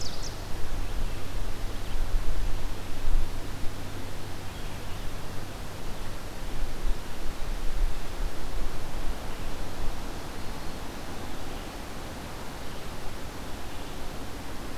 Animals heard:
Red-eyed Vireo (Vireo olivaceus), Black-throated Green Warbler (Setophaga virens)

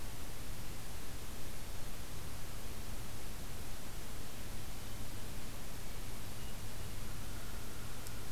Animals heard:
Hermit Thrush (Catharus guttatus), American Crow (Corvus brachyrhynchos)

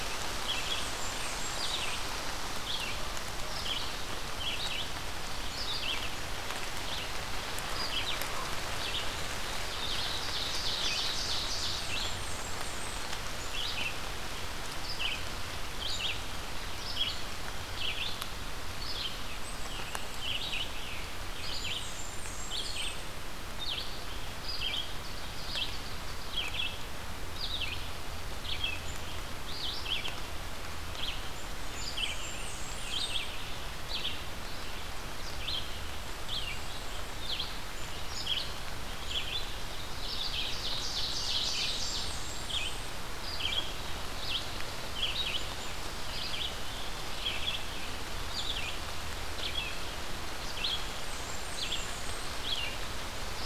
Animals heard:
Ovenbird (Seiurus aurocapilla), Red-eyed Vireo (Vireo olivaceus), Scarlet Tanager (Piranga olivacea), Black-and-white Warbler (Mniotilta varia), Blackburnian Warbler (Setophaga fusca)

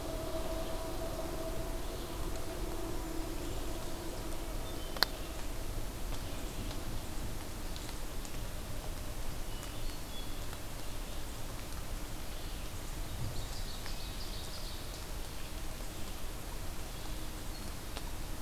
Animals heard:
Ovenbird (Seiurus aurocapilla), Black-capped Chickadee (Poecile atricapillus), Hermit Thrush (Catharus guttatus), Red-eyed Vireo (Vireo olivaceus)

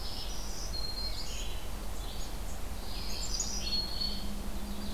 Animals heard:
Yellow-rumped Warbler (Setophaga coronata), Black-capped Chickadee (Poecile atricapillus), Black-throated Green Warbler (Setophaga virens), Red-eyed Vireo (Vireo olivaceus), Hermit Thrush (Catharus guttatus)

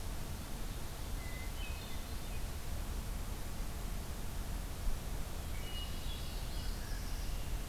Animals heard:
Red-winged Blackbird (Agelaius phoeniceus), Northern Parula (Setophaga americana), Hermit Thrush (Catharus guttatus)

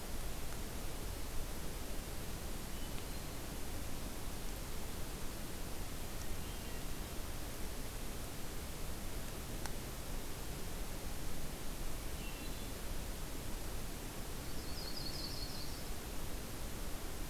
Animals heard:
Yellow-rumped Warbler (Setophaga coronata), Hermit Thrush (Catharus guttatus)

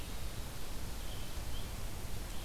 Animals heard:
Red-eyed Vireo (Vireo olivaceus)

